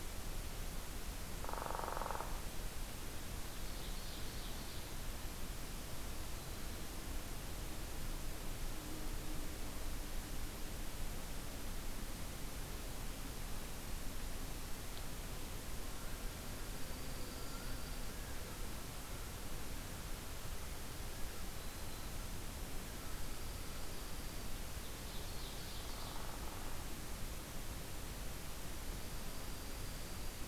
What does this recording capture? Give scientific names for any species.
Colaptes auratus, Seiurus aurocapilla, Setophaga virens, Larus smithsonianus, Junco hyemalis